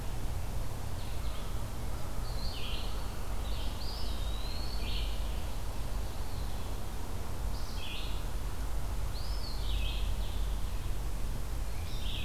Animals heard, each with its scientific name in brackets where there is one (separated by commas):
Eastern Wood-Pewee (Contopus virens), Red-eyed Vireo (Vireo olivaceus)